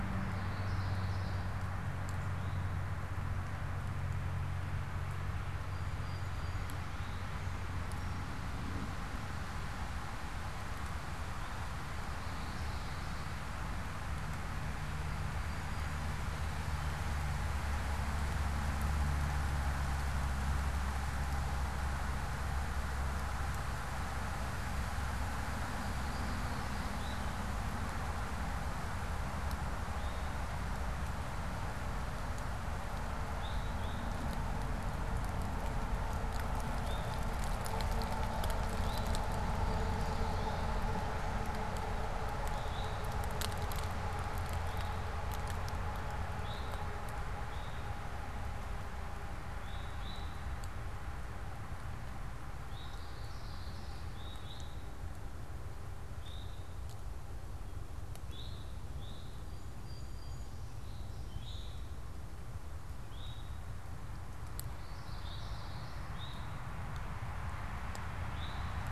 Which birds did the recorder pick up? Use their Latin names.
Geothlypis trichas, Pipilo erythrophthalmus, Melospiza melodia, unidentified bird